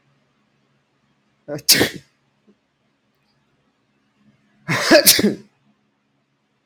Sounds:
Sneeze